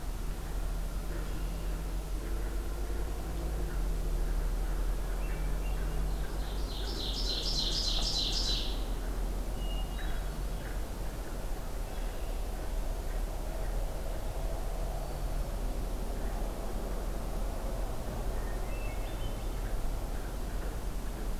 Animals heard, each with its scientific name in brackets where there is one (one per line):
Hermit Thrush (Catharus guttatus)
Red-winged Blackbird (Agelaius phoeniceus)
Ovenbird (Seiurus aurocapilla)